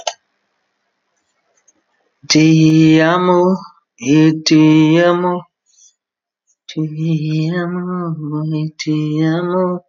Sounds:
Sigh